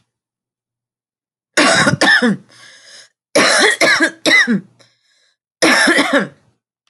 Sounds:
Cough